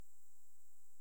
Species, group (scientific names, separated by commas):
Pholidoptera griseoaptera, Orthoptera